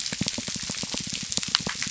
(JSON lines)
{"label": "biophony", "recorder": "SoundTrap 300"}